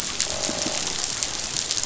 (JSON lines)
{"label": "biophony, croak", "recorder": "SoundTrap 500"}